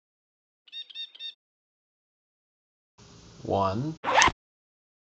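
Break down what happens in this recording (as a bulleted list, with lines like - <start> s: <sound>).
- 0.7 s: a bird can be heard
- 3.4 s: someone says "One."
- 4.0 s: the sound of a zipper is audible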